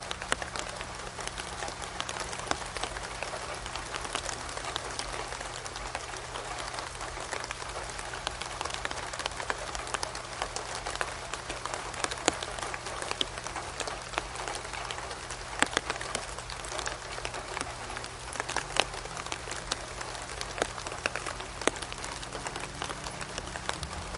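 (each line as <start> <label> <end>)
0.1 Quiet rain sounds in the background. 24.1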